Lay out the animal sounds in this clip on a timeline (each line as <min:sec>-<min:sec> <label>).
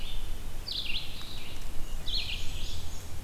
0:00.0-0:02.8 Red-eyed Vireo (Vireo olivaceus)
0:01.7-0:03.2 Black-and-white Warbler (Mniotilta varia)